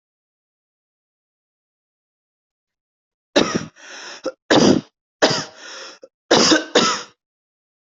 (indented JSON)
{
  "expert_labels": [
    {
      "quality": "good",
      "cough_type": "dry",
      "dyspnea": false,
      "wheezing": false,
      "stridor": false,
      "choking": false,
      "congestion": false,
      "nothing": true,
      "diagnosis": "COVID-19",
      "severity": "mild"
    }
  ],
  "age": 34,
  "gender": "female",
  "respiratory_condition": false,
  "fever_muscle_pain": false,
  "status": "COVID-19"
}